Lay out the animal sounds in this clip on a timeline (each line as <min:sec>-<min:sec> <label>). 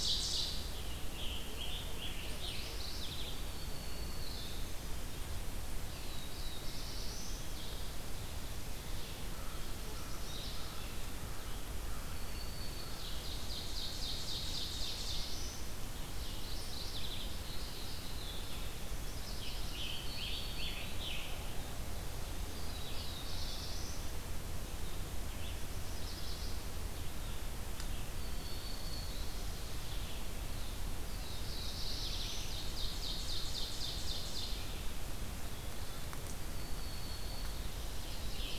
0:00.0-0:00.8 Ovenbird (Seiurus aurocapilla)
0:00.0-0:38.6 Red-eyed Vireo (Vireo olivaceus)
0:00.4-0:03.0 Scarlet Tanager (Piranga olivacea)
0:02.1-0:03.7 Mourning Warbler (Geothlypis philadelphia)
0:03.3-0:04.9 Black-throated Green Warbler (Setophaga virens)
0:05.5-0:07.6 Black-throated Blue Warbler (Setophaga caerulescens)
0:09.2-0:12.4 American Crow (Corvus brachyrhynchos)
0:11.9-0:13.6 Black-throated Green Warbler (Setophaga virens)
0:12.5-0:15.7 Ovenbird (Seiurus aurocapilla)
0:14.4-0:15.8 Black-throated Blue Warbler (Setophaga caerulescens)
0:16.0-0:18.8 Mourning Warbler (Geothlypis philadelphia)
0:19.2-0:21.6 Scarlet Tanager (Piranga olivacea)
0:19.6-0:21.4 Black-throated Green Warbler (Setophaga virens)
0:22.2-0:24.2 Black-throated Blue Warbler (Setophaga caerulescens)
0:25.6-0:26.7 Chestnut-sided Warbler (Setophaga pensylvanica)
0:27.9-0:29.6 Black-throated Green Warbler (Setophaga virens)
0:30.3-0:32.7 Black-throated Blue Warbler (Setophaga caerulescens)
0:32.0-0:34.7 Ovenbird (Seiurus aurocapilla)
0:36.1-0:38.1 Black-throated Green Warbler (Setophaga virens)
0:37.9-0:38.6 Chestnut-sided Warbler (Setophaga pensylvanica)
0:38.0-0:38.6 Scarlet Tanager (Piranga olivacea)